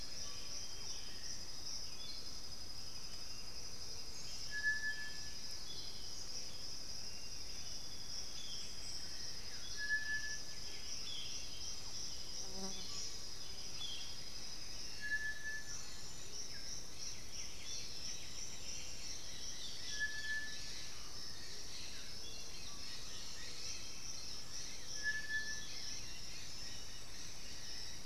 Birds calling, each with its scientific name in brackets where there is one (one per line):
White-winged Becard (Pachyramphus polychopterus)
Black-billed Thrush (Turdus ignobilis)
Undulated Tinamou (Crypturellus undulatus)
Chestnut-winged Foliage-gleaner (Dendroma erythroptera)
Boat-billed Flycatcher (Megarynchus pitangua)
Striped Cuckoo (Tapera naevia)
Dusky-headed Parakeet (Aratinga weddellii)
Russet-backed Oropendola (Psarocolius angustifrons)
unidentified bird